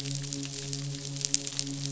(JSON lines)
{"label": "biophony, midshipman", "recorder": "SoundTrap 500"}